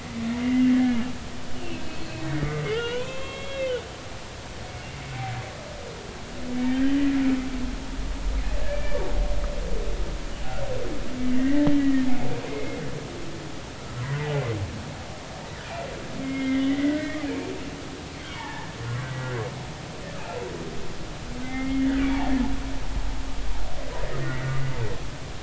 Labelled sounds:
0.0	0.8	humpback whale, 1.9 to 2.2 kHz
1.5	3.8	humpback whale, 0.93 to 3.9 kHz
8.6	9.0	humpback whale, 1.6 to 2.4 kHz
11.2	12.1	humpback whale, 1.7 to 2.1 kHz
12.5	12.8	humpback whale, 2.0 to 2.3 kHz
14.0	14.2	humpback whale, 0.93 to 1.1 kHz
16.2	17.1	humpback whale, 1.5 to 2.2 kHz
18.3	18.7	humpback whale, 0.80 to 1.9 kHz
19.2	19.4	humpback whale, 1.5 to 1.7 kHz
21.4	21.9	humpback whale, 2.0 to 2.2 kHz
24.2	24.5	humpback whale, 1.8 to 2.1 kHz

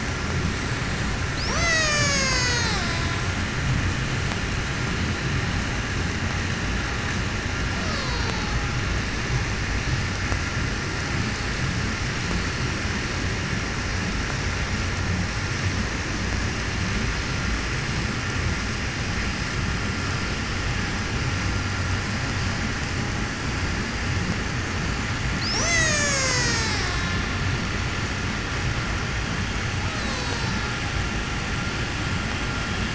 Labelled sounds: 1.2	3.7	killer whale, Bigg's (transient), 0.13 to 8.0 kHz
7.5	9.1	killer whale, Bigg's (transient), call T08, 0.15 to 8.0 kHz
25.1	27.8	killer whale, Bigg's (transient), call T03, 0.02 to 8.0 kHz
29.5	31.6	killer whale, Bigg's (transient), 0.26 to 8.0 kHz

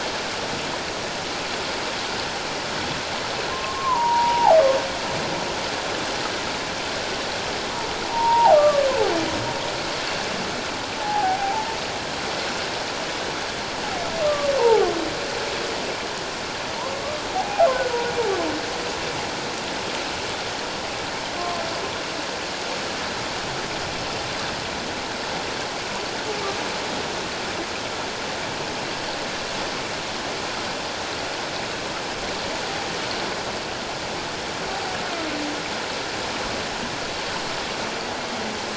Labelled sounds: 3.5	4.6	humpback whale, 0.78 to 1.2 kHz
8.1	8.8	humpback whale, 0.78 to 1.2 kHz
11.0	11.8	humpback whale, 0.78 to 0.97 kHz
14.6	14.9	humpback whale, 0.78 to 1.1 kHz
17.3	17.7	humpback whale, 0.78 to 0.88 kHz

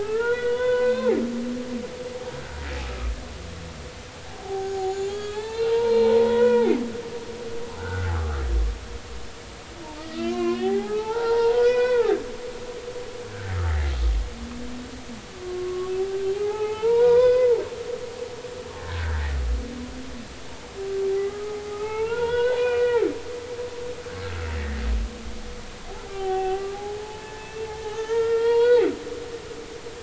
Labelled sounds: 0.0	1.2	humpback whale, 0.80 to 4.0 kHz
4.3	6.7	humpback whale, 0.80 to 7.2 kHz
7.8	8.1	humpback whale, 1.3 to 1.6 kHz
10.1	12.3	humpback whale, 0.80 to 5.1 kHz
15.4	17.6	humpback whale, 0.80 to 5.1 kHz
18.8	19.3	humpback whale, 1.4 to 1.9 kHz
21.1	23.1	humpback whale, 0.80 to 4.0 kHz
24.2	24.8	humpback whale, 1.3 to 2.0 kHz
26.1	28.9	humpback whale, 0.80 to 4.4 kHz

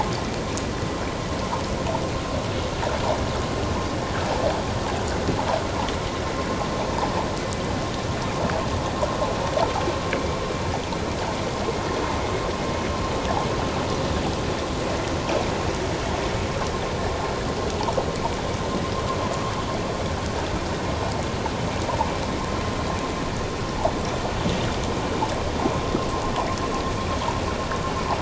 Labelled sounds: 10.1	10.4	vessel noise, 2.1 to 2.4 kHz

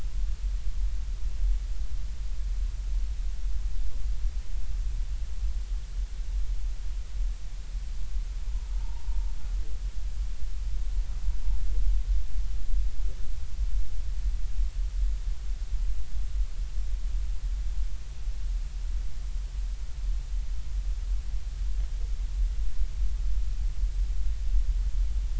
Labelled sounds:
8.7	9.3	humpback whale, 0.83 to 1.0 kHz

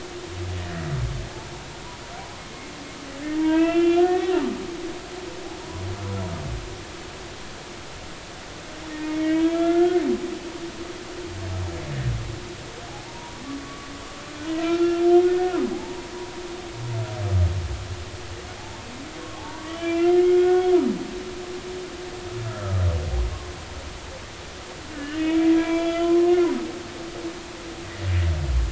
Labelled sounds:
3.2	4.4	humpback whale, 0.90 to 3.6 kHz
9.0	10.0	humpback whale, 1.3 to 3.4 kHz
12.9	13.9	humpback whale, 0.80 to 1.2 kHz
14.5	15.0	humpback whale, 1.3 to 4.5 kHz
15.3	16.1	humpback whale, 0.80 to 1.9 kHz
19.4	20.7	humpback whale, 0.80 to 3.4 kHz
22.4	22.8	humpback whale, 1.2 to 1.4 kHz
24.9	26.4	humpback whale, 0.93 to 3.5 kHz

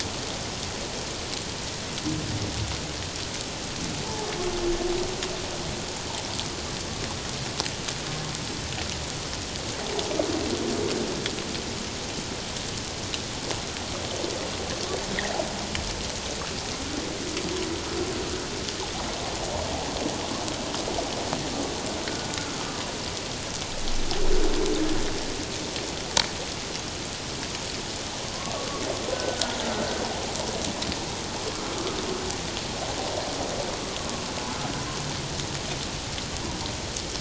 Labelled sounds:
28.3	29.6	humpback whale, 0.97 to 1.6 kHz

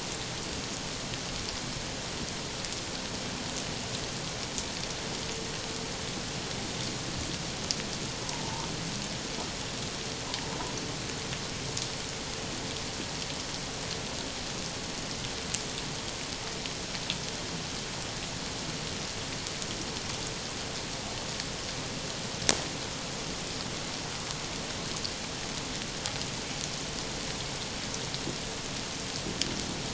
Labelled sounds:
8.2	8.7	humpback whale, 0.81 to 1.1 kHz

